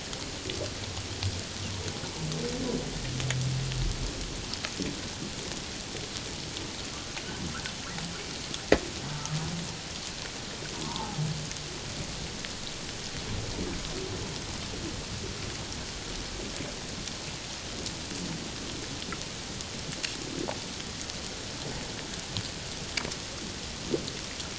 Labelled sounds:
10.8	11.2	humpback whale, 0.78 to 1.2 kHz

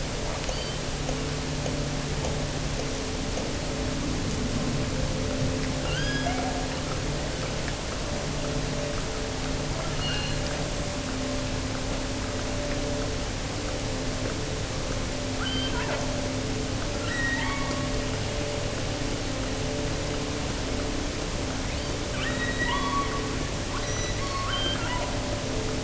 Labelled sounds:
0.3	0.9	killer whale, offshore, 1.9 to 4.7 kHz
5.7	6.8	killer whale, offshore, 0.61 to 6.8 kHz
9.8	10.5	killer whale, offshore, 1.1 to 4.5 kHz
15.2	16.5	killer whale, offshore, 0.50 to 4.9 kHz
17.0	17.9	killer whale, offshore, 0.80 to 6.0 kHz
21.7	25.4	killer whale, offshore, 0.73 to 6.1 kHz

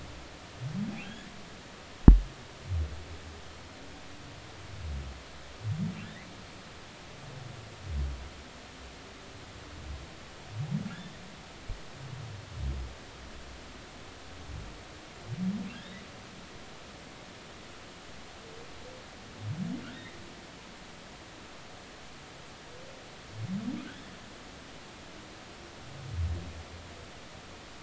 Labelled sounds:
1.0	1.3	humpback whale, 1.5 to 3.5 kHz
6.0	6.3	humpback whale, 1.6 to 2.2 kHz
10.9	11.2	humpback whale, 3.3 to 3.7 kHz
20.8	21.2	humpback whale, 1.3 to 2.1 kHz

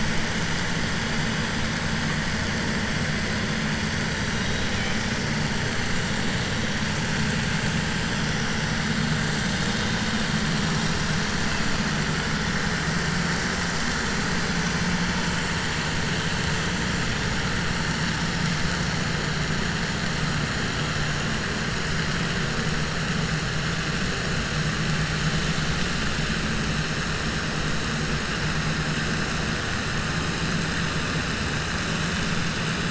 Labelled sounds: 4.4	5.0	killer whale, 2.3 to 4.0 kHz

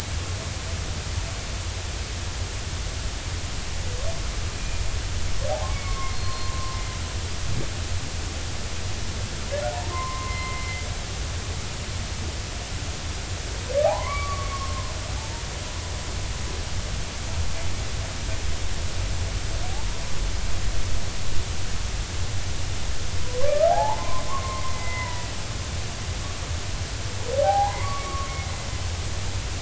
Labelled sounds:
4.5	4.8	humpback whale, 2.4 to 2.5 kHz
5.5	7.0	humpback whale, 0.80 to 4.3 kHz
9.9	10.8	humpback whale, 0.96 to 2.1 kHz
13.8	15.4	humpback whale, 0.80 to 2.4 kHz
23.4	25.3	humpback whale, 0.80 to 2.1 kHz
27.4	28.3	humpback whale, 0.80 to 1.2 kHz

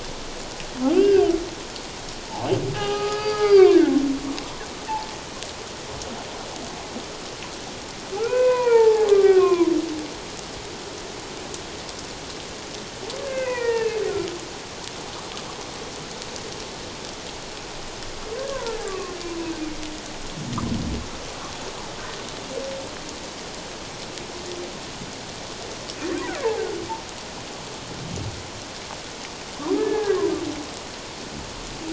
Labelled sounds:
0.9	1.2	humpback whale, 1.4 to 3.2 kHz
2.7	3.8	humpback whale, 0.78 to 4.9 kHz
8.1	9.7	humpback whale, 0.78 to 2.7 kHz
13.2	14.4	humpback whale, 0.88 to 2.8 kHz
18.4	19.2	humpback whale, 0.88 to 1.7 kHz
29.8	30.3	humpback whale, 0.94 to 1.8 kHz

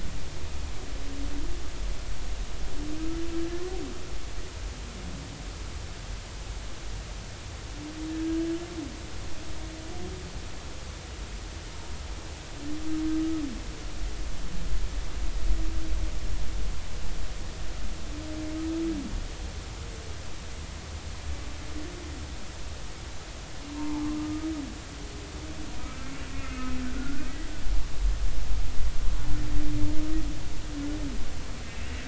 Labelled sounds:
23.7	24.5	humpback whale, 0.80 to 1.3 kHz
25.8	27.5	humpback whale, 1.2 to 2.2 kHz

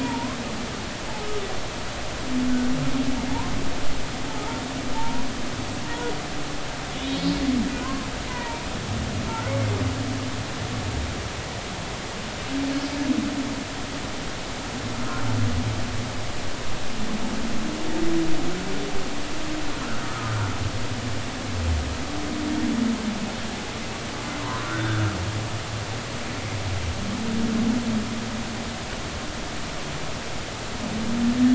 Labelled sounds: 0.0	0.4	humpback whale, 0.86 to 1.2 kHz
4.9	5.3	humpback whale, 0.83 to 1.0 kHz
7.7	8.7	humpback whale, 0.86 to 2.1 kHz
9.5	9.7	humpback whale, 2.0 to 2.3 kHz
24.6	25.0	humpback whale, 1.3 to 3.6 kHz

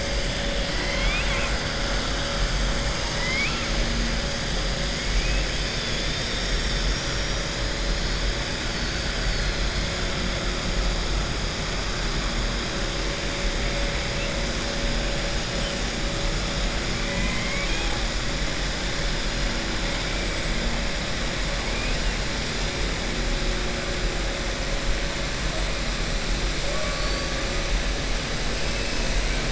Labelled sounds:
0.7	1.5	killer whale, southern resident, 0.96 to 4.3 kHz
2.9	3.7	killer whale, southern resident, 0.96 to 4.1 kHz
21.6	22.1	killer whale, southern resident, 1.9 to 3.0 kHz

